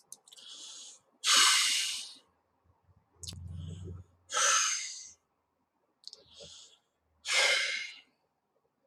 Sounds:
Sigh